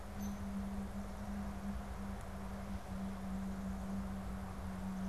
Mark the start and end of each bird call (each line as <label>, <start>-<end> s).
Hairy Woodpecker (Dryobates villosus), 0.0-0.5 s